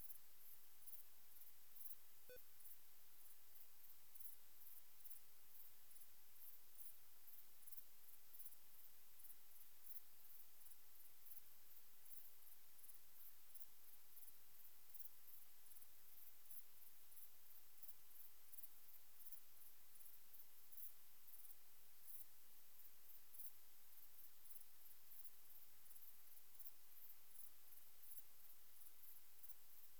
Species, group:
Pholidoptera griseoaptera, Orthoptera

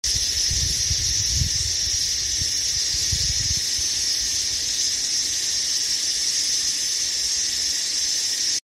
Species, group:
Thopha saccata, Cicadidae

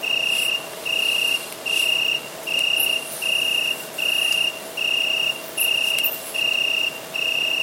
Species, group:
Oecanthus pellucens, Orthoptera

